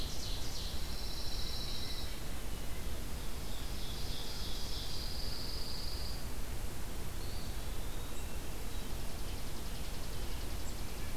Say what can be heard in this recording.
Ovenbird, Pine Warbler, Eastern Wood-Pewee, Chipping Sparrow